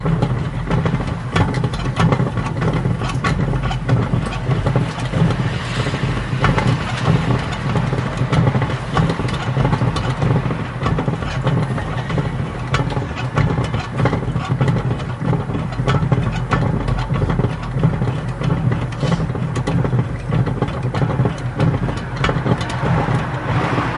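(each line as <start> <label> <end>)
0.0 The rhythmic sound of a fan rotating next to a road. 24.0
4.4 Cars passing by in the background. 11.6
16.0 The fan blades squeak. 17.4
18.9 A rapid, short sniff. 19.4
22.1 Cars passing by in the background. 24.0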